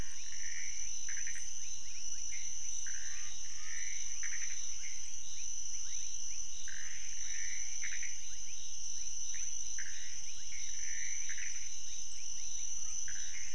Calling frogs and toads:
Pithecopus azureus, rufous frog
Cerrado, 4am

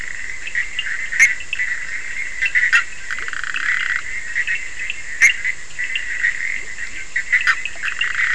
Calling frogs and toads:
Bischoff's tree frog, Scinax perereca, Leptodactylus latrans
Atlantic Forest, 3:30am

